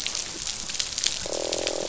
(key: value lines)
label: biophony, croak
recorder: SoundTrap 500